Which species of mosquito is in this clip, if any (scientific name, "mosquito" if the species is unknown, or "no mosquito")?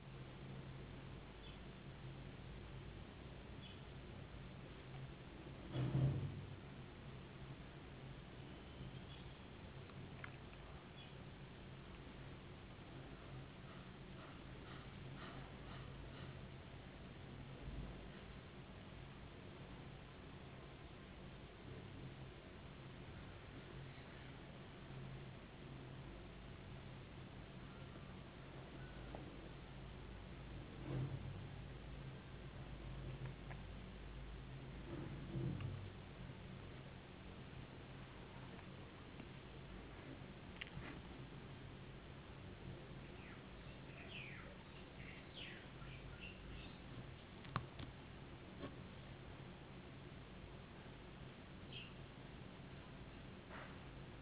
no mosquito